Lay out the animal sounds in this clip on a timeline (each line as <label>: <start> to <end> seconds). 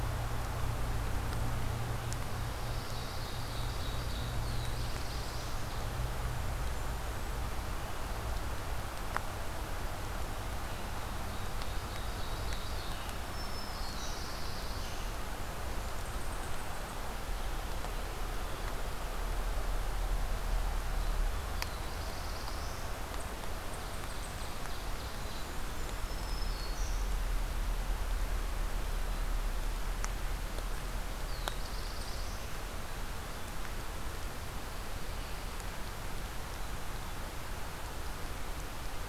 Pine Warbler (Setophaga pinus): 2.1 to 3.4 seconds
Ovenbird (Seiurus aurocapilla): 2.4 to 5.3 seconds
Black-throated Blue Warbler (Setophaga caerulescens): 4.1 to 6.1 seconds
Ovenbird (Seiurus aurocapilla): 10.7 to 13.2 seconds
Black-throated Green Warbler (Setophaga virens): 13.0 to 14.3 seconds
Black-throated Blue Warbler (Setophaga caerulescens): 13.6 to 15.1 seconds
Eastern Chipmunk (Tamias striatus): 15.9 to 17.1 seconds
Black-throated Blue Warbler (Setophaga caerulescens): 21.2 to 23.1 seconds
Eastern Chipmunk (Tamias striatus): 22.6 to 24.7 seconds
Ovenbird (Seiurus aurocapilla): 23.5 to 25.6 seconds
Black-capped Chickadee (Poecile atricapillus): 25.0 to 25.7 seconds
Blackburnian Warbler (Setophaga fusca): 25.1 to 26.4 seconds
Black-throated Green Warbler (Setophaga virens): 25.9 to 27.2 seconds
Black-throated Blue Warbler (Setophaga caerulescens): 31.0 to 32.7 seconds